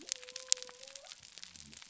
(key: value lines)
label: biophony
recorder: SoundTrap 300